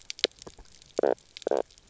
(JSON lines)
{"label": "biophony, knock croak", "recorder": "SoundTrap 300"}